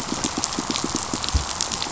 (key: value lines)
label: biophony, pulse
recorder: SoundTrap 500